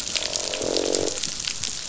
{"label": "biophony, croak", "recorder": "SoundTrap 500"}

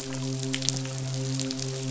{"label": "biophony, midshipman", "recorder": "SoundTrap 500"}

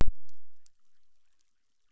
{"label": "biophony, chorus", "recorder": "SoundTrap 600"}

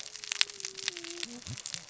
{"label": "biophony, cascading saw", "recorder": "SoundTrap 600 or HydroMoth"}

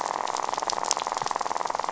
{"label": "biophony, rattle", "recorder": "SoundTrap 500"}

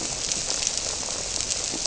{"label": "biophony", "recorder": "SoundTrap 300"}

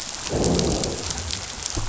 {"label": "biophony, growl", "recorder": "SoundTrap 500"}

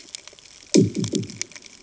{"label": "anthrophony, bomb", "recorder": "HydroMoth"}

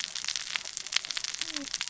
{"label": "biophony, cascading saw", "recorder": "SoundTrap 600 or HydroMoth"}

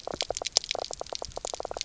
{"label": "biophony, knock croak", "recorder": "SoundTrap 300"}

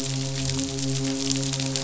{"label": "biophony, midshipman", "recorder": "SoundTrap 500"}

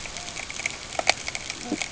{"label": "ambient", "recorder": "HydroMoth"}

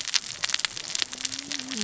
{"label": "biophony, cascading saw", "recorder": "SoundTrap 600 or HydroMoth"}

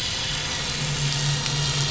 {"label": "anthrophony, boat engine", "recorder": "SoundTrap 500"}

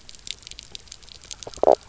{"label": "biophony, knock croak", "recorder": "SoundTrap 300"}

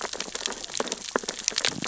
{"label": "biophony, sea urchins (Echinidae)", "recorder": "SoundTrap 600 or HydroMoth"}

